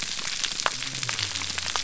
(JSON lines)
{"label": "biophony", "recorder": "SoundTrap 300"}